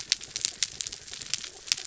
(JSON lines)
{"label": "anthrophony, mechanical", "recorder": "SoundTrap 300"}